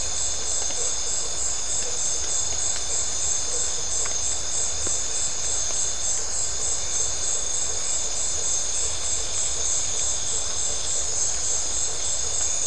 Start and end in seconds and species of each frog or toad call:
none
11:15pm

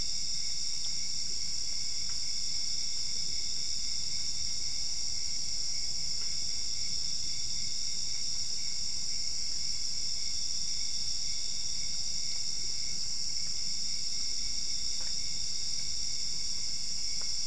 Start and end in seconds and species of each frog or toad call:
none
12:45am

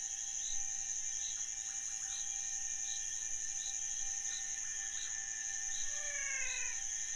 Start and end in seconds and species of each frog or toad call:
5.7	7.1	Physalaemus albonotatus
1:30am

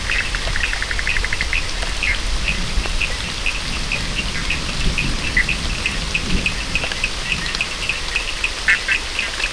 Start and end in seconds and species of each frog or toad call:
0.0	9.5	Sphaenorhynchus surdus
5.3	5.5	Boana bischoffi
8.6	9.0	Boana bischoffi
4:00am

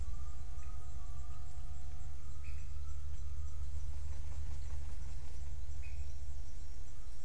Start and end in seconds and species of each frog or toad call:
0.6	0.8	Leptodactylus podicipinus
2.4	2.8	Leptodactylus podicipinus
5.7	6.2	Leptodactylus podicipinus
5:45pm

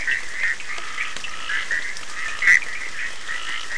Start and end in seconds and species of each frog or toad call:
0.0	1.4	Sphaenorhynchus surdus
0.0	3.7	Boana bischoffi
0.0	3.7	Scinax perereca
2.1	3.7	Sphaenorhynchus surdus
4:30am

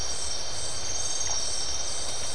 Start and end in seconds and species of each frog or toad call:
none
12:45am

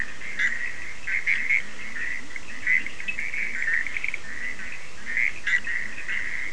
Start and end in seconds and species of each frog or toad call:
0.0	6.5	Boana bischoffi
0.0	6.5	Sphaenorhynchus surdus
1.3	6.5	Leptodactylus latrans
1:30am

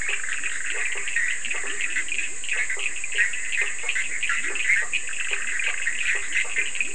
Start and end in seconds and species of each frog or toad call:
0.0	6.9	Boana bischoffi
0.0	6.9	Boana faber
0.0	6.9	Sphaenorhynchus surdus
0.3	6.9	Leptodactylus latrans
2:00am

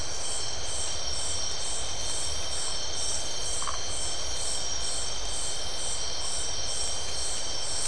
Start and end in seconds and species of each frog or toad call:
3.6	3.8	Phyllomedusa distincta
11:45pm

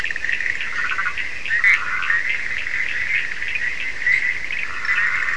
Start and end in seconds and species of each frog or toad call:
0.0	5.3	Boana bischoffi
0.0	5.3	Sphaenorhynchus surdus
0.6	5.3	Boana prasina
1.5	1.8	Boana leptolineata
4:15am

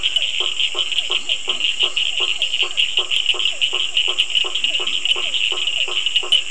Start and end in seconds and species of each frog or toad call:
0.0	6.5	Boana faber
0.0	6.5	Physalaemus cuvieri
1.1	1.8	Leptodactylus latrans
4.5	5.5	Leptodactylus latrans
7:30pm

